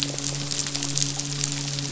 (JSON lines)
{"label": "biophony, midshipman", "recorder": "SoundTrap 500"}